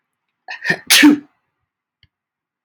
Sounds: Sneeze